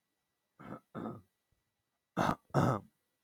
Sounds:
Throat clearing